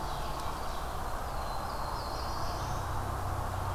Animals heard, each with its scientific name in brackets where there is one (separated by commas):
Ovenbird (Seiurus aurocapilla), Black-throated Blue Warbler (Setophaga caerulescens)